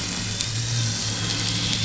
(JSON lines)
{"label": "anthrophony, boat engine", "recorder": "SoundTrap 500"}